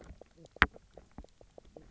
{"label": "biophony, knock croak", "recorder": "SoundTrap 300"}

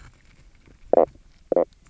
{"label": "biophony, knock croak", "recorder": "SoundTrap 300"}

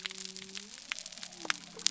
{"label": "biophony", "recorder": "SoundTrap 300"}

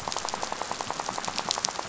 {"label": "biophony, rattle", "recorder": "SoundTrap 500"}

